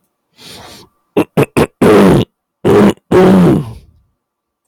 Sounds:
Throat clearing